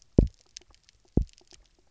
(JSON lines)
{"label": "biophony, double pulse", "recorder": "SoundTrap 300"}